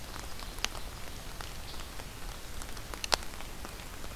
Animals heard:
forest ambience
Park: Marsh-Billings-Rockefeller National Historical Park